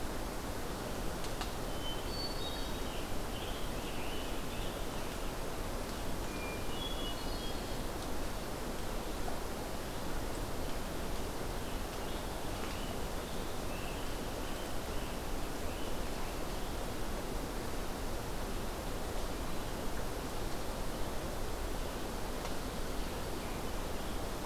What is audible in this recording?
Hermit Thrush, Scarlet Tanager